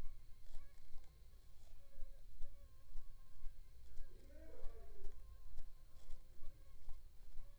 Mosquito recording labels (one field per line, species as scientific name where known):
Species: Aedes aegypti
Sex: female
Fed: unfed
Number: one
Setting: cup